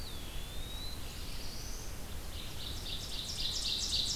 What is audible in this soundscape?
Eastern Wood-Pewee, Red-eyed Vireo, Black-throated Blue Warbler, Ovenbird